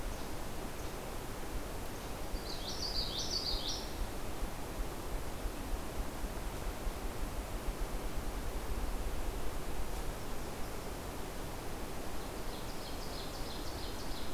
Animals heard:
Ovenbird (Seiurus aurocapilla)
Least Flycatcher (Empidonax minimus)
Common Yellowthroat (Geothlypis trichas)

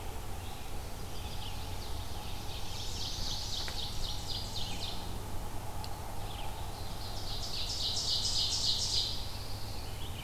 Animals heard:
Chestnut-sided Warbler (Setophaga pensylvanica)
Ovenbird (Seiurus aurocapilla)
Red-eyed Vireo (Vireo olivaceus)
Pine Warbler (Setophaga pinus)

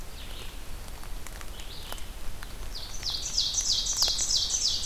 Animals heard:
Red-eyed Vireo (Vireo olivaceus)
Black-throated Green Warbler (Setophaga virens)
Ovenbird (Seiurus aurocapilla)

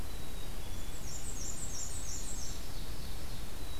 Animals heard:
Black-capped Chickadee (Poecile atricapillus)
Ovenbird (Seiurus aurocapilla)
Black-and-white Warbler (Mniotilta varia)

